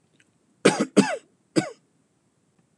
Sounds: Cough